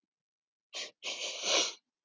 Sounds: Sniff